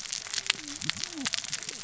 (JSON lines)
{"label": "biophony, cascading saw", "recorder": "SoundTrap 600 or HydroMoth"}